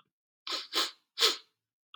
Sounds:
Sniff